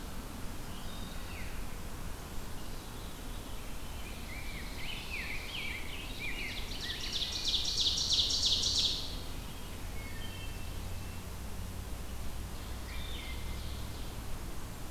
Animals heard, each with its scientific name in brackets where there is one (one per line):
Ovenbird (Seiurus aurocapilla)
Wood Thrush (Hylocichla mustelina)
Veery (Catharus fuscescens)
Eastern Wood-Pewee (Contopus virens)
Rose-breasted Grosbeak (Pheucticus ludovicianus)